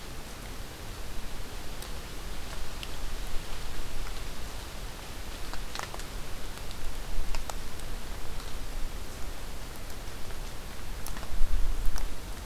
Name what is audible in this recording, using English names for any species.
forest ambience